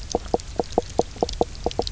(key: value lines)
label: biophony, knock croak
recorder: SoundTrap 300